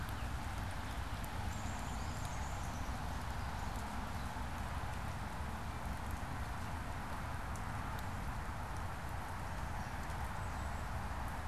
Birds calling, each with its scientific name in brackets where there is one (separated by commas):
Downy Woodpecker (Dryobates pubescens)